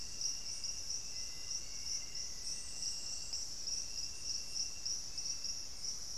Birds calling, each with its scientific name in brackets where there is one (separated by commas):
Black-faced Antthrush (Formicarius analis)